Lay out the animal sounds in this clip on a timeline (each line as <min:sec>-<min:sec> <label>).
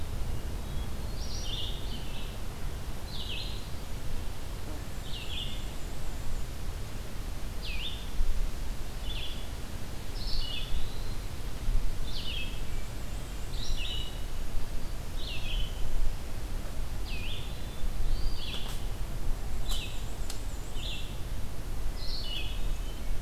0:00.1-0:01.5 Hermit Thrush (Catharus guttatus)
0:01.0-0:23.2 Red-eyed Vireo (Vireo olivaceus)
0:04.5-0:06.5 Black-and-white Warbler (Mniotilta varia)
0:10.1-0:11.3 Eastern Wood-Pewee (Contopus virens)
0:12.4-0:14.2 Black-and-white Warbler (Mniotilta varia)
0:17.2-0:18.7 Hermit Thrush (Catharus guttatus)
0:17.9-0:18.7 Eastern Wood-Pewee (Contopus virens)
0:19.2-0:21.3 Black-and-white Warbler (Mniotilta varia)
0:21.7-0:23.1 Hermit Thrush (Catharus guttatus)